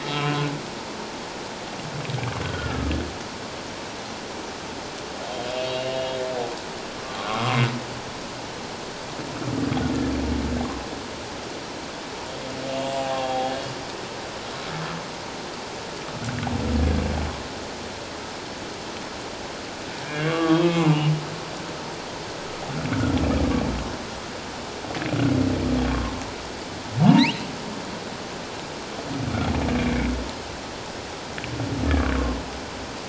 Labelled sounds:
0.0	0.4	humpback whale, 1.2 to 2.8 kHz
2.4	2.9	humpback whale, 1.2 to 1.5 kHz
5.5	6.2	humpback whale, 2.7 to 2.9 kHz
7.2	7.6	humpback whale, 1.0 to 1.4 kHz
12.7	13.5	humpback whale, 0.78 to 2.9 kHz
20.0	21.0	humpback whale, 0.97 to 3.4 kHz
22.9	23.2	humpback whale, 1.3 to 1.6 kHz
27.0	27.3	humpback whale, 0.84 to 1.0 kHz

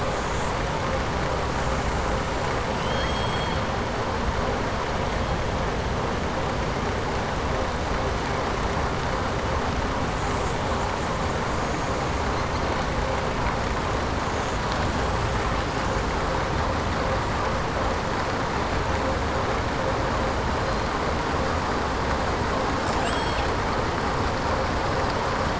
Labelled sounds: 2.7	3.6	killer whale, southern resident, 1.6 to 4.4 kHz

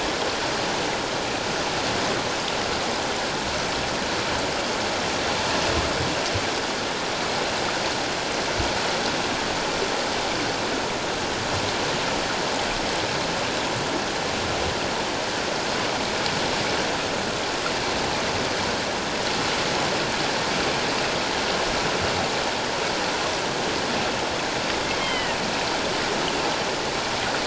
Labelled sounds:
25.0	25.4	killer whale, northern resident, G clan, GG subclan, 1.8 to 3.2 kHz

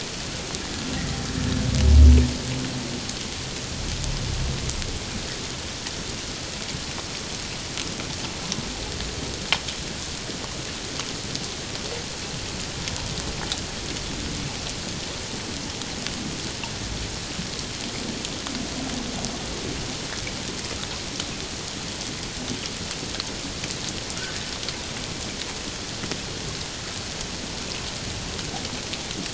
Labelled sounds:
1.4	1.6	humpback whale, 1.7 to 1.8 kHz

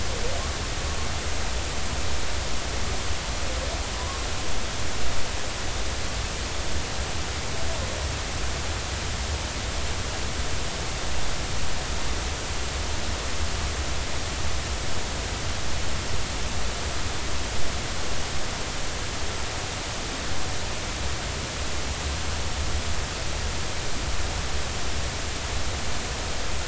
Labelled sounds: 3.9	4.2	humpback whale, 0.96 to 1.2 kHz

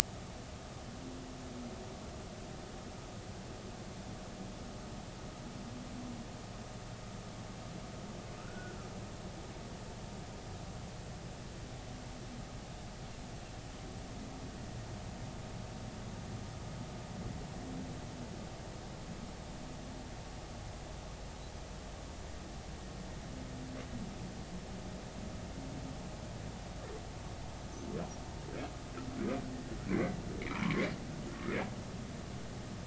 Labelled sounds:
8.4	8.8	humpback whale, 1.2 to 1.6 kHz
29.9	30.8	humpback whale, 0.93 to 2.6 kHz

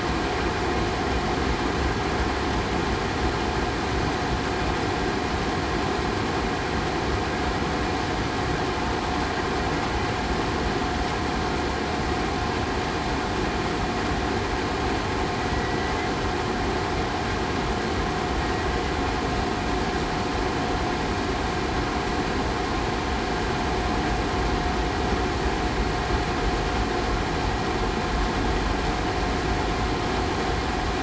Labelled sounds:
15.5	15.9	killer whale, southern resident, 1.9 to 2.0 kHz

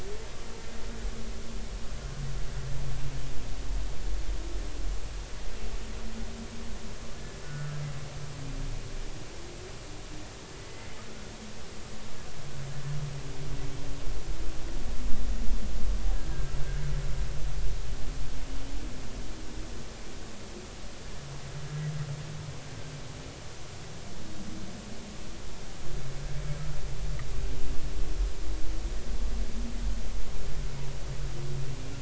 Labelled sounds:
7.4	7.8	humpback whale, 1.3 to 1.5 kHz
10.6	10.9	humpback whale, 2.0 to 2.1 kHz

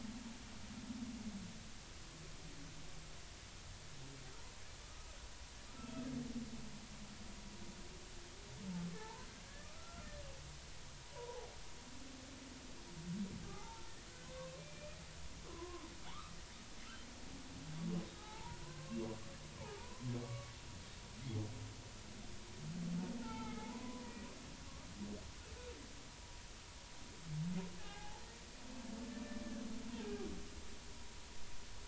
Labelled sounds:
5.8	6.0	humpback whale, 2.6 to 2.8 kHz
9.0	10.1	humpback whale, 0.83 to 1.8 kHz
11.1	11.4	humpback whale, 0.80 to 1.1 kHz
13.4	15.8	humpback whale, 0.80 to 2.6 kHz
18.2	19.0	humpback whale, 0.80 to 1.3 kHz
19.8	20.5	humpback whale, 0.83 to 1.2 kHz
23.2	24.1	humpback whale, 0.80 to 2.3 kHz
27.8	28.2	humpback whale, 0.80 to 1.8 kHz
30.0	30.3	humpback whale, 1.6 to 1.7 kHz

